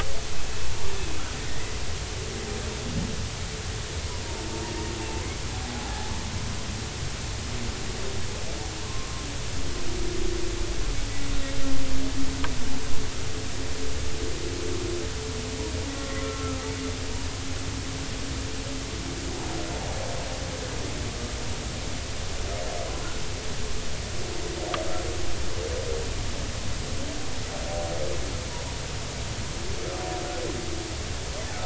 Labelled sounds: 1.5	1.8	humpback whale, 1.8 to 2.1 kHz
5.6	6.1	humpback whale, 0.80 to 0.90 kHz
8.8	9.2	humpback whale, 0.99 to 1.2 kHz
16.0	16.6	humpback whale, 1.0 to 1.4 kHz

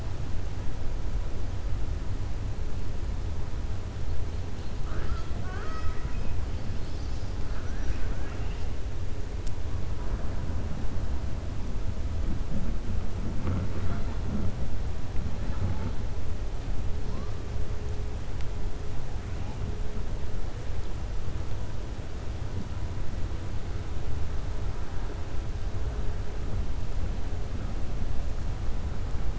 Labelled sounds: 4.8	6.3	killer whale, 0.36 to 6.4 kHz
7.4	8.7	killer whale, 1.3 to 3.7 kHz

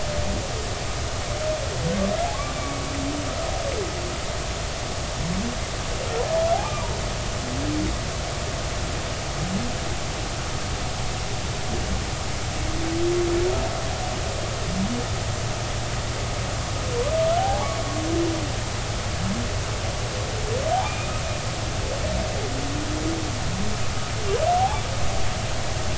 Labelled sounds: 2.5	2.8	humpback whale, 2.2 to 2.4 kHz
6.5	6.9	humpback whale, 0.80 to 1.3 kHz
17.4	17.7	humpback whale, 0.80 to 0.99 kHz
20.8	21.1	humpback whale, 2.3 to 2.5 kHz

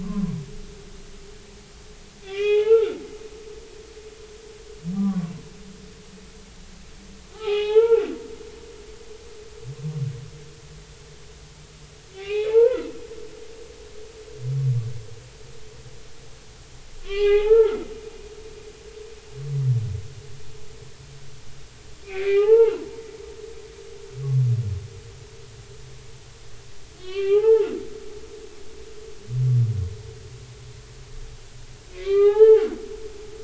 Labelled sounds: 0.0	0.4	humpback whale, 0.96 to 1.2 kHz
2.2	3.0	humpback whale, 0.80 to 3.5 kHz
5.0	5.3	humpback whale, 0.93 to 1.2 kHz
7.3	8.1	humpback whale, 0.80 to 3.5 kHz
12.1	12.9	humpback whale, 0.80 to 3.9 kHz
17.0	17.8	humpback whale, 0.80 to 3.3 kHz
22.0	23.8	humpback whale, 0.80 to 2.9 kHz
27.0	27.7	humpback whale, 0.80 to 3.6 kHz
31.9	32.8	humpback whale, 0.80 to 4.1 kHz

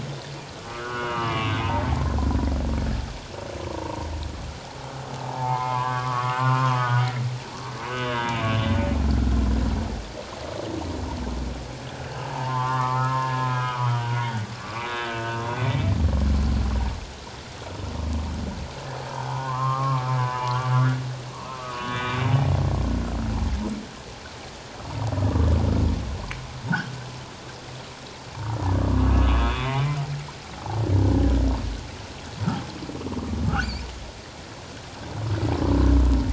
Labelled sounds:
0.7	1.8	humpback whale, 0.81 to 3.0 kHz
3.7	4.1	humpback whale, 0.84 to 1.2 kHz
5.1	8.6	humpback whale, 0.78 to 3.6 kHz
12.3	14.5	humpback whale, 0.78 to 2.2 kHz
14.9	15.8	humpback whale, 1.5 to 3.9 kHz
19.1	22.2	humpback whale, 0.78 to 3.8 kHz
28.3	28.6	humpback whale, 0.78 to 0.97 kHz
29.3	29.8	humpback whale, 1.9 to 3.6 kHz

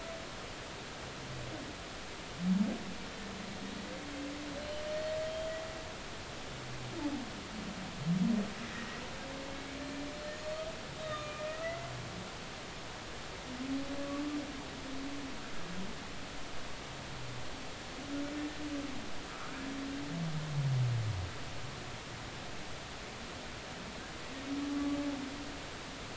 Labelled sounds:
4.9	5.5	humpback whale, 3.1 to 4.4 kHz
8.6	9.0	humpback whale, 1.8 to 2.0 kHz
9.5	9.8	humpback whale, 2.1 to 2.3 kHz
10.4	10.6	humpback whale, 4.2 to 4.5 kHz
11.0	11.9	humpback whale, 1.2 to 3.8 kHz
19.3	19.5	humpback whale, 1.1 to 1.4 kHz
24.7	25.0	humpback whale, 1.1 to 1.2 kHz

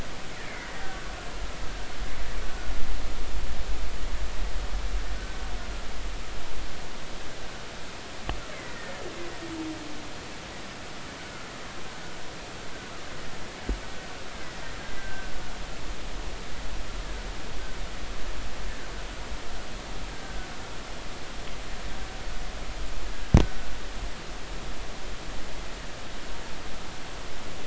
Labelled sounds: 0.4	0.9	killer whale, Bigg's (transient), 1.8 to 2.4 kHz
2.5	2.7	killer whale, Bigg's (transient), 1.4 to 1.5 kHz
5.1	5.4	killer whale, Bigg's (transient), 1.4 to 1.6 kHz
8.5	9.0	killer whale, Bigg's (transient), 1.7 to 2.3 kHz
15.0	15.3	killer whale, Bigg's (transient), 1.5 to 1.6 kHz
20.2	20.5	killer whale, Bigg's (transient), 1.4 to 1.6 kHz

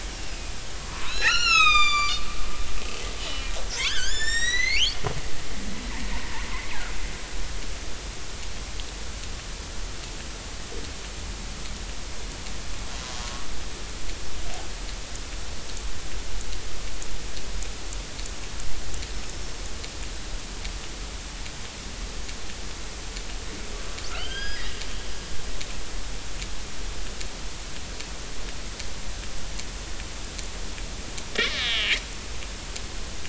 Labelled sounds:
0.1	2.2	killer whale, northern resident, 0.93 to 8.0 kHz
3.2	3.5	killer whale, northern resident, 2.9 to 3.1 kHz
3.8	5.0	killer whale, northern resident, 1.3 to 8.0 kHz
13.2	13.5	killer whale, northern resident, 1.1 to 1.2 kHz
24.1	24.6	killer whale, northern resident, 1.2 to 5.2 kHz
31.4	31.9	killer whale, northern resident, 1.6 to 4.0 kHz
32.2	32.5	killer whale, northern resident, 2.5 to 2.8 kHz

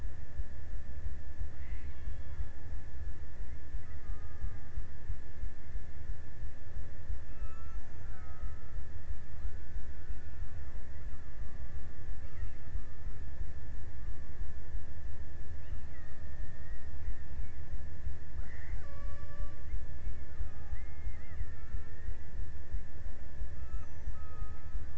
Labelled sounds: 1.4	3.1	killer whale, Bigg's (transient), 0.60 to 3.6 kHz
3.7	4.8	killer whale, Bigg's (transient), 0.43 to 2.3 kHz
7.1	9.0	killer whale, Bigg's (transient), 0.33 to 1.8 kHz
11.3	13.8	killer whale, Bigg's (transient), 0.76 to 1.7 kHz
15.2	20.4	killer whale, Bigg's (transient), 0.39 to 3.3 kHz
23.3	24.9	killer whale, Bigg's (transient), 0.79 to 2.0 kHz

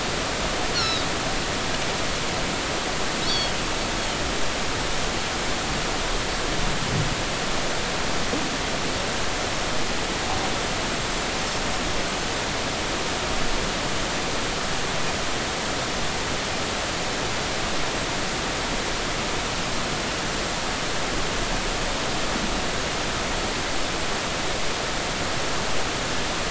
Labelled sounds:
0.7	1.1	Pacific white-sided dolphin, 3.7 to 4.4 kHz
3.3	3.5	Pacific white-sided dolphin, 3.2 to 3.5 kHz
4.0	4.2	Pacific white-sided dolphin, 2.8 to 3.4 kHz

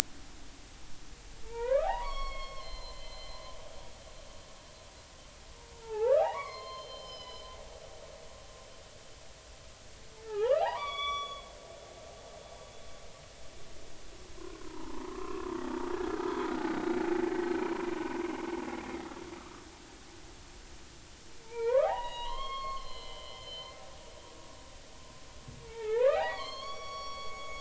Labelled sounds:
1.5	3.4	humpback whale, 0.80 to 5.6 kHz
5.8	7.5	humpback whale, 0.80 to 5.3 kHz
8.0	8.5	humpback whale, 5.0 to 5.2 kHz
10.2	11.5	humpback whale, 0.80 to 5.8 kHz
14.4	16.2	humpback whale, 0.83 to 1.7 kHz
16.5	17.0	humpback whale, 1.4 to 3.8 kHz
19.4	19.6	humpback whale, 1.1 to 1.4 kHz
21.4	23.8	humpback whale, 0.80 to 5.5 kHz
25.7	27.5	humpback whale, 0.80 to 6.5 kHz

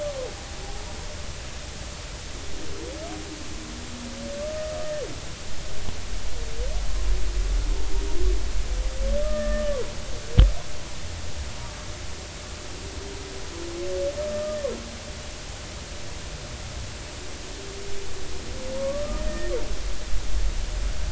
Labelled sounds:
9.2	9.8	humpback whale, 0.93 to 1.9 kHz
14.3	14.6	humpback whale, 1.2 to 1.3 kHz
18.8	19.5	humpback whale, 1.1 to 1.9 kHz

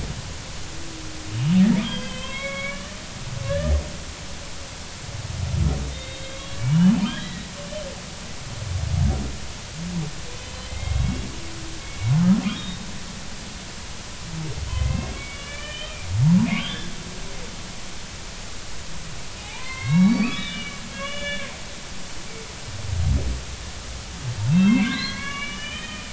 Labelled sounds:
1.8	2.9	humpback whale, 0.99 to 3.9 kHz
3.5	3.8	humpback whale, 1.6 to 1.9 kHz
5.9	7.5	humpback whale, 1.5 to 3.9 kHz
10.7	11.3	humpback whale, 2.0 to 3.4 kHz
11.8	12.8	humpback whale, 2.1 to 3.8 kHz
14.6	16.0	humpback whale, 1.7 to 3.5 kHz
16.6	16.9	humpback whale, 1.4 to 3.6 kHz
19.4	21.5	humpback whale, 0.80 to 4.6 kHz
24.5	26.1	humpback whale, 0.99 to 4.3 kHz

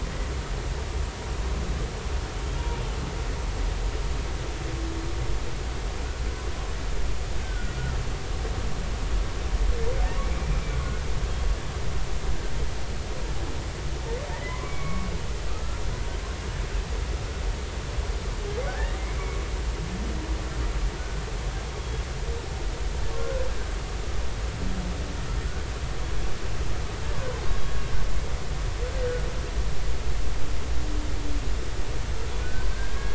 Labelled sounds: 2.6	2.8	humpback whale, 0.90 to 0.99 kHz
7.4	7.7	humpback whale, 1.4 to 1.6 kHz
14.3	15.8	humpback whale, 0.96 to 2.4 kHz
18.7	19.0	humpback whale, 1.4 to 2.0 kHz
21.0	21.2	humpback whale, 1.4 to 1.5 kHz
23.2	23.4	humpback whale, 1.3 to 1.5 kHz
32.4	33.1	humpback whale, 1.4 to 1.7 kHz

